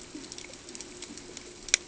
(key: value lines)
label: ambient
recorder: HydroMoth